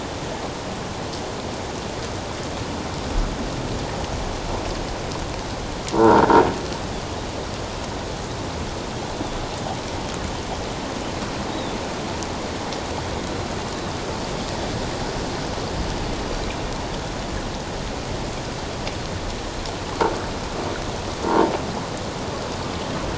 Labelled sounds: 5.9	6.2	croaking sound likely from a nearby submerged object, 0.84 to 1.5 kHz
11.5	11.8	Pacific white-sided dolphin, 3.4 to 3.9 kHz
21.3	21.5	croaking sound likely from a nearby submerged object, 0.84 to 1.1 kHz

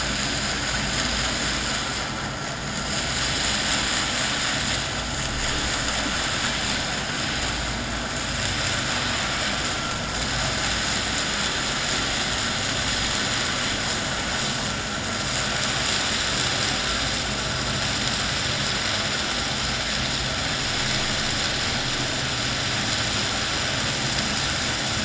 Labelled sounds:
9.7	10.0	vessel noise, 1.3 to 1.4 kHz

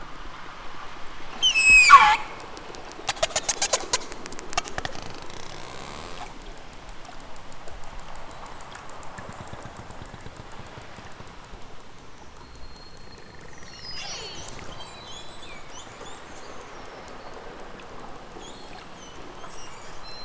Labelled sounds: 1.4	2.3	killer whale, southern Alaska resident, 0.55 to 8.0 kHz
13.8	15.7	killer whale, southern Alaska resident, 2.0 to 8.0 kHz

